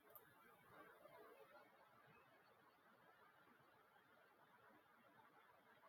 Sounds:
Cough